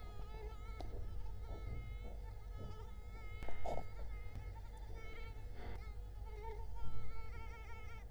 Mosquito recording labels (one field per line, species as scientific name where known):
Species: Culex quinquefasciatus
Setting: cup